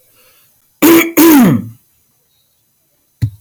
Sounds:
Throat clearing